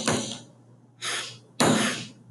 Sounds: Sniff